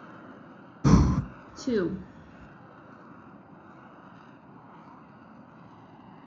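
At 0.84 seconds, there is breathing. Then at 1.67 seconds, a voice says "two."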